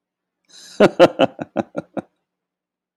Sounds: Laughter